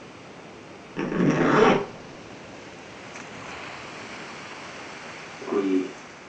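An even background noise persists. At 0.95 seconds, the sound of a zipper is heard. Then at 5.42 seconds, someone says "Three."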